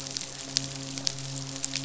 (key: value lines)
label: biophony, midshipman
recorder: SoundTrap 500